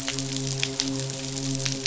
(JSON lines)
{"label": "biophony, midshipman", "recorder": "SoundTrap 500"}